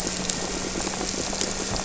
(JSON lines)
{"label": "anthrophony, boat engine", "recorder": "SoundTrap 300"}
{"label": "biophony", "recorder": "SoundTrap 300"}